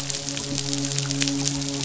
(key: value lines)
label: biophony, midshipman
recorder: SoundTrap 500